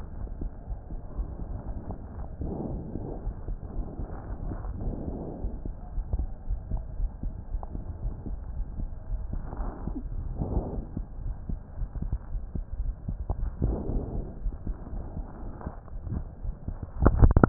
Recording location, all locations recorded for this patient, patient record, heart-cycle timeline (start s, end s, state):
aortic valve (AV)
aortic valve (AV)+pulmonary valve (PV)+tricuspid valve (TV)+mitral valve (MV)
#Age: Child
#Sex: Male
#Height: nan
#Weight: nan
#Pregnancy status: False
#Murmur: Absent
#Murmur locations: nan
#Most audible location: nan
#Systolic murmur timing: nan
#Systolic murmur shape: nan
#Systolic murmur grading: nan
#Systolic murmur pitch: nan
#Systolic murmur quality: nan
#Diastolic murmur timing: nan
#Diastolic murmur shape: nan
#Diastolic murmur grading: nan
#Diastolic murmur pitch: nan
#Diastolic murmur quality: nan
#Outcome: Normal
#Campaign: 2015 screening campaign
0.00	1.95	unannotated
1.95	2.14	diastole
2.14	2.26	S1
2.26	2.38	systole
2.38	2.50	S2
2.50	2.72	diastole
2.72	2.84	S1
2.84	2.94	systole
2.94	3.02	S2
3.02	3.22	diastole
3.22	3.34	S1
3.34	3.46	systole
3.46	3.58	S2
3.58	3.77	diastole
3.77	3.88	S1
3.88	3.98	systole
3.98	4.08	S2
4.08	4.28	diastole
4.28	4.38	S1
4.38	4.46	systole
4.46	4.58	S2
4.58	4.80	diastole
4.80	4.94	S1
4.94	5.06	systole
5.06	5.20	S2
5.20	5.44	diastole
5.44	5.54	S1
5.54	5.64	systole
5.64	5.74	S2
5.74	5.96	diastole
5.96	6.08	S1
6.08	6.12	systole
6.12	6.28	S2
6.28	6.50	diastole
6.50	6.62	S1
6.62	6.70	systole
6.70	6.80	S2
6.80	6.98	diastole
6.98	7.12	S1
7.12	7.22	systole
7.22	7.34	S2
7.34	7.54	diastole
7.54	7.64	S1
7.64	7.74	systole
7.74	7.84	S2
7.84	8.04	diastole
8.04	8.16	S1
8.16	8.26	systole
8.26	8.38	S2
8.38	8.56	diastole
8.56	8.68	S1
8.68	8.76	systole
8.76	8.88	S2
8.88	9.10	diastole
9.10	9.21	S1
9.21	9.31	systole
9.31	9.42	S2
9.42	9.60	diastole
9.60	9.74	S1
9.74	9.82	systole
9.82	9.94	S2
9.94	10.14	diastole
10.14	10.76	unannotated
10.76	10.88	S1
10.88	10.96	systole
10.96	11.06	S2
11.06	11.24	diastole
11.24	11.38	S1
11.38	11.48	systole
11.48	11.58	S2
11.58	11.77	diastole
11.77	11.90	S1
11.90	11.96	systole
11.96	12.10	S2
12.10	12.32	diastole
12.32	12.44	S1
12.44	12.56	systole
12.56	12.64	S2
12.64	12.77	diastole
12.77	17.49	unannotated